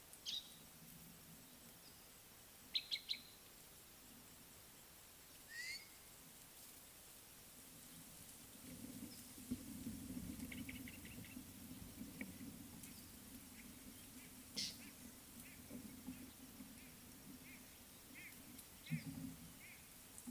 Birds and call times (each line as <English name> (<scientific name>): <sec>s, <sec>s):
Gray-backed Camaroptera (Camaroptera brevicaudata): 2.9s
White-bellied Go-away-bird (Corythaixoides leucogaster): 18.9s